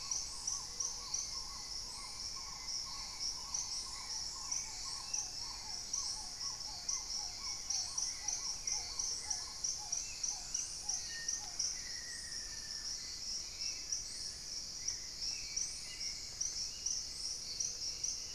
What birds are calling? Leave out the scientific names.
Black-tailed Trogon, Hauxwell's Thrush, Paradise Tanager, Gray-fronted Dove, Black-faced Antthrush, Thrush-like Wren, Dusky-throated Antshrike